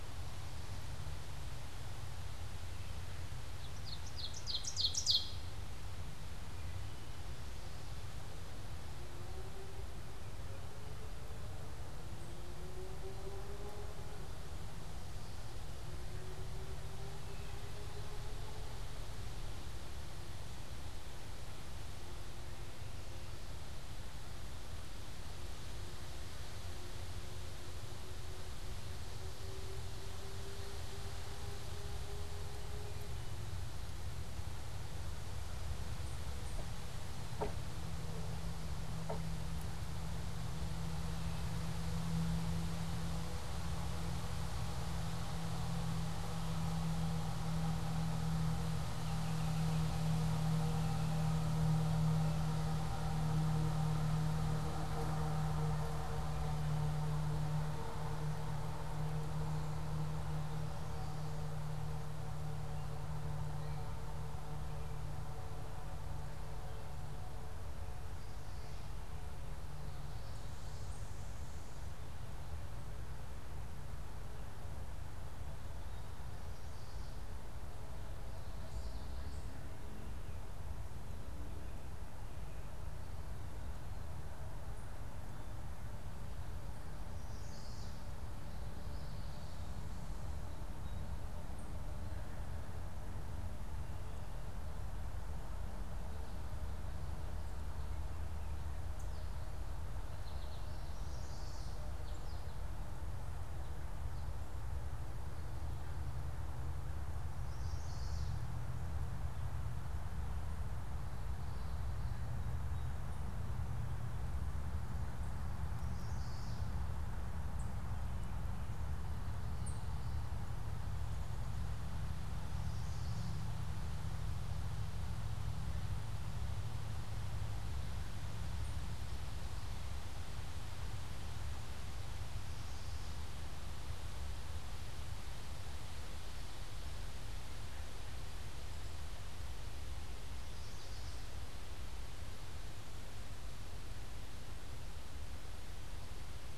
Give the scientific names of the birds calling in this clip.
Seiurus aurocapilla, Setophaga pensylvanica, Geothlypis trichas, Spinus tristis